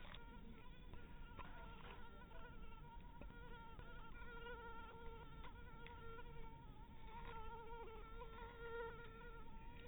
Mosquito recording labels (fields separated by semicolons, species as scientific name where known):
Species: mosquito; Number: one; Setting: cup